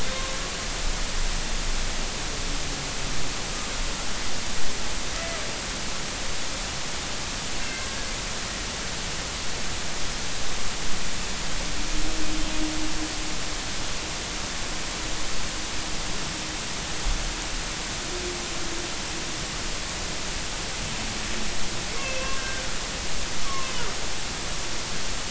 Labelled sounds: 0.1	0.4	humpback whale, 0.99 to 1.2 kHz
7.6	8.1	humpback whale, 1.5 to 2.2 kHz
22.0	22.6	humpback whale, 1.4 to 2.8 kHz
23.4	23.7	humpback whale, 0.99 to 1.3 kHz

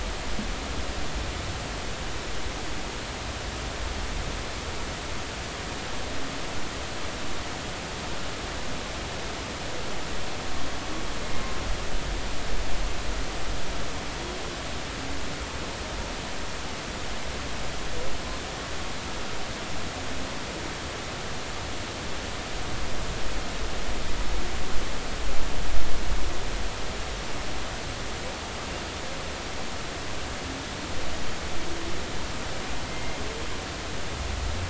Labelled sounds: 32.9	33.2	humpback whale, 2.0 to 2.2 kHz

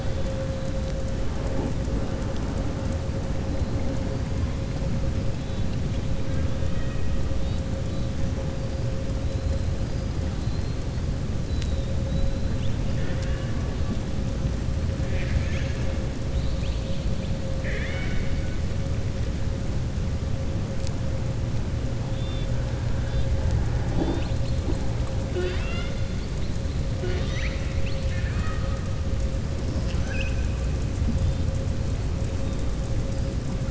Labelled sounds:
6.6	7.1	killer whale, southern resident, 1.2 to 3.2 kHz
10.3	10.8	killer whale, southern resident, 3.8 to 4.6 kHz
15.0	15.9	killer whale, southern resident, 1.3 to 4.0 kHz
17.5	18.5	killer whale, southern resident, 0.81 to 4.4 kHz
26.9	28.8	killer whale, southern resident, 0.66 to 5.9 kHz
29.6	30.5	killer whale, southern resident, 0.81 to 6.6 kHz

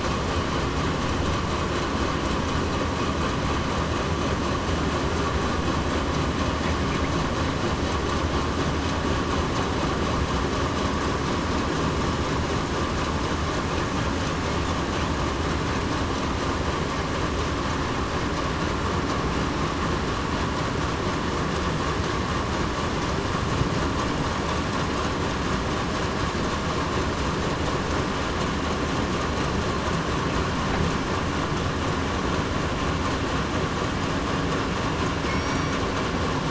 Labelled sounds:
35.3	35.7	killer whale, southern resident, 2.1 to 4.6 kHz

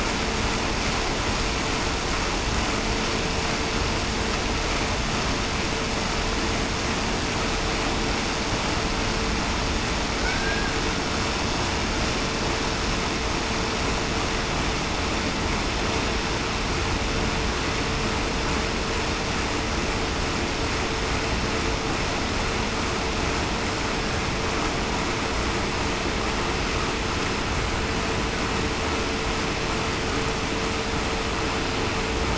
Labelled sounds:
10.2	10.7	killer whale, Bigg's (transient), 1.4 to 1.7 kHz

